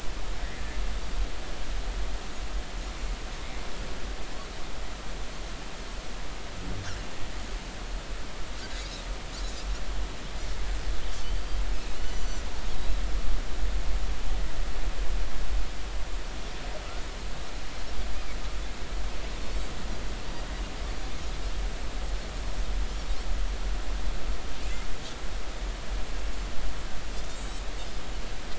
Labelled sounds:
11.2	11.6	Pacific white-sided dolphin, 4.4 to 4.8 kHz
12.0	12.5	Pacific white-sided dolphin, 2.9 to 6.1 kHz
27.3	27.6	Pacific white-sided dolphin, 6.5 to 8.0 kHz

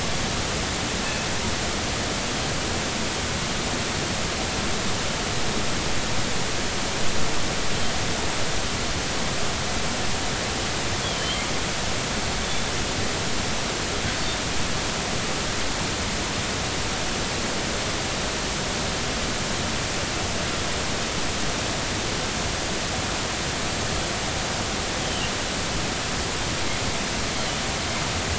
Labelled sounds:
11.0	11.4	killer whale, northern resident, G clan, GG subclan, call N45, 3.0 to 3.5 kHz
25.0	25.3	killer whale, northern resident, G clan, GG subclan, call N45, 2.7 to 3.2 kHz

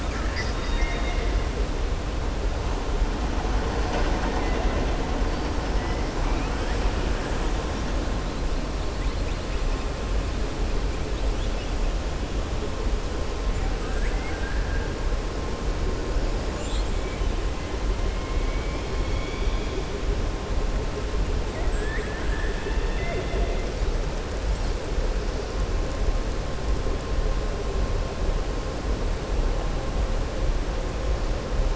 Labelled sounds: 0.0	1.3	killer whale, southern resident, 1.4 to 6.8 kHz
13.7	14.9	killer whale, southern resident, 0.77 to 2.3 kHz

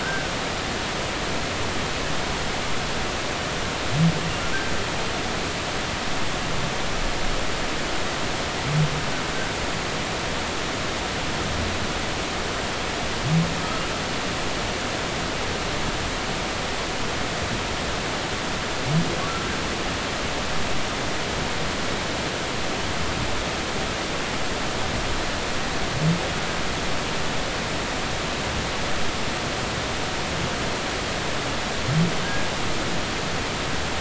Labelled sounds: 0.0	0.3	humpback whale, 1.4 to 1.7 kHz
32.2	32.5	humpback whale, 1.5 to 1.7 kHz

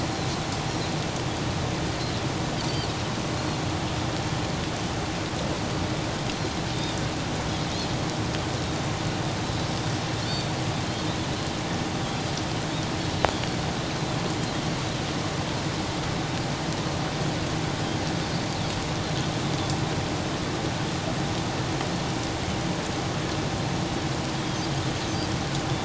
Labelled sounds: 10.8	11.1	Pacific white-sided dolphin, 4.0 to 4.4 kHz

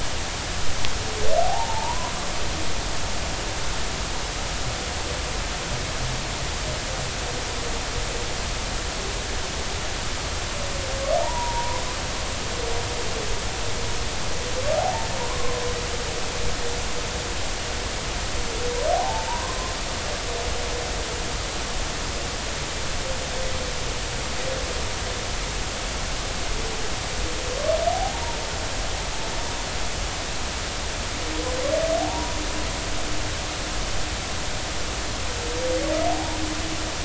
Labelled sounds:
1.4	2.1	humpback whale, 0.80 to 1.1 kHz
11.2	11.8	humpback whale, 0.80 to 1.1 kHz
14.8	15.6	humpback whale, 0.80 to 1.1 kHz
18.9	19.8	humpback whale, 0.80 to 1.1 kHz
32.0	32.3	humpback whale, 0.80 to 0.99 kHz
36.1	36.4	humpback whale, 0.80 to 1.0 kHz

